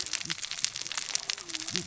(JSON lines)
{"label": "biophony, cascading saw", "recorder": "SoundTrap 600 or HydroMoth"}